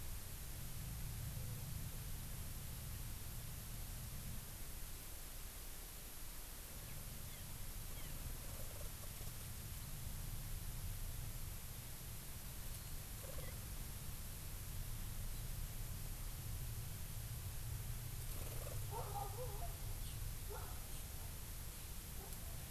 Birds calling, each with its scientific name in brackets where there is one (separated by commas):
Eurasian Skylark (Alauda arvensis)